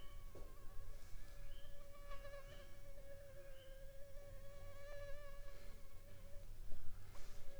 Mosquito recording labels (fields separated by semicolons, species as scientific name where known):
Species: Anopheles funestus s.s.; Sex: female; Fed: unfed; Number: one; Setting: cup